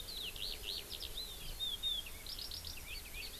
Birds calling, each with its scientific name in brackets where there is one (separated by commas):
Eurasian Skylark (Alauda arvensis)